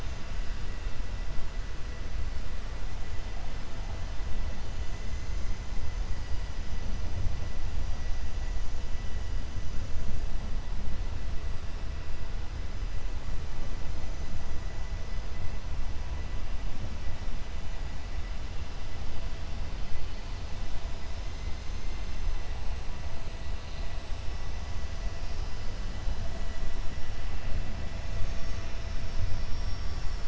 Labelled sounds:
28.9	30.2	vessel noise, 4.6 to 6.4 kHz

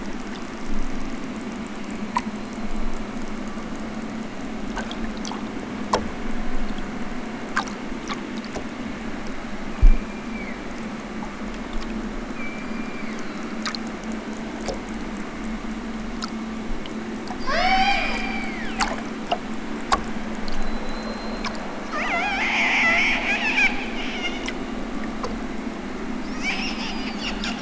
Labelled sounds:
9.7	11.0	killer whale, southern Alaska resident, 1.4 to 5.2 kHz
12.3	13.7	killer whale, southern Alaska resident, 1.1 to 4.9 kHz
17.4	18.8	killer whale, southern Alaska resident, 0.28 to 8.0 kHz
26.4	27.5	killer whale, southern Alaska resident, 4.0 to 8.0 kHz

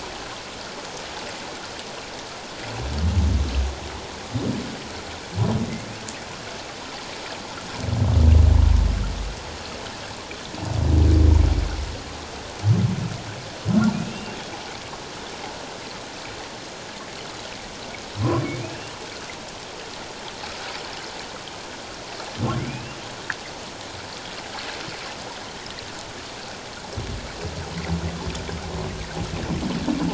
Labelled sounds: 13.9	14.4	humpback whale, 2.3 to 2.8 kHz
18.6	18.9	humpback whale, 2.3 to 3.0 kHz
22.6	23.0	humpback whale, 2.0 to 2.8 kHz

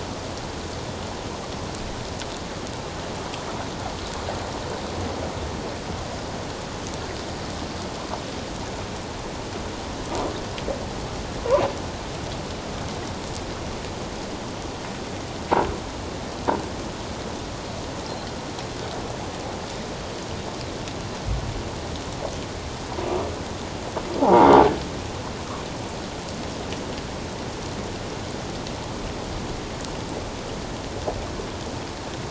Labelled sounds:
24.2	24.5	croaking sound likely from a nearby submerged object, 0.78 to 1.1 kHz

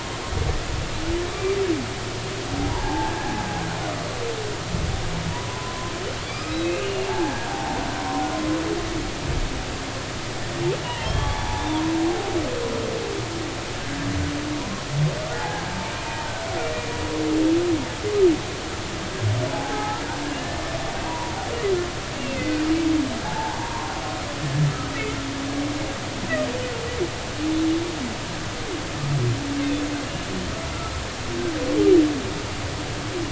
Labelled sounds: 1.2	1.6	humpback whale, 1.1 to 2.4 kHz
2.7	3.2	humpback whale, 0.80 to 1.7 kHz
5.3	7.8	humpback whale, 0.80 to 5.2 kHz
10.8	11.8	humpback whale, 0.80 to 3.7 kHz
15.4	16.3	humpback whale, 0.80 to 0.96 kHz
19.5	21.3	humpback whale, 0.80 to 1.4 kHz
22.1	22.6	humpback whale, 1.5 to 2.9 kHz
23.2	23.9	humpback whale, 0.80 to 1.1 kHz

